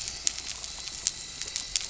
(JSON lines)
{"label": "anthrophony, boat engine", "recorder": "SoundTrap 300"}